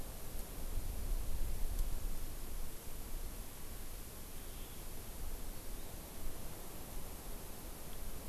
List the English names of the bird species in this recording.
Hawaiian Hawk, Hawaii Amakihi